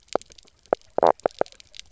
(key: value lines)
label: biophony, knock croak
recorder: SoundTrap 300